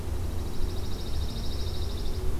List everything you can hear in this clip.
Pine Warbler